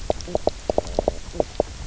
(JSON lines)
{"label": "biophony, knock croak", "recorder": "SoundTrap 300"}